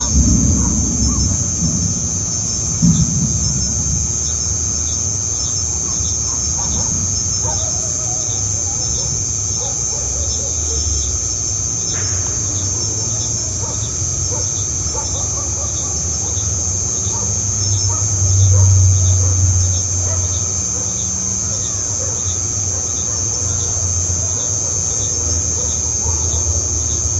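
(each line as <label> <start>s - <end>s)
A dog barks muffled in the background. 0.0s - 1.7s
Thunder rumbles in the background, muffled and distant. 0.0s - 2.1s
A cricket chirps loudly and repeatedly outdoors. 0.0s - 27.2s
Fireworks explode in the distance, muffled. 2.6s - 3.7s
Dogs barking rapidly and repeatedly in the background. 5.7s - 11.4s
A muffled, distant clap. 11.6s - 12.3s
A dog barks repeatedly in the distance. 12.8s - 27.2s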